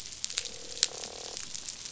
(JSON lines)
{"label": "biophony, croak", "recorder": "SoundTrap 500"}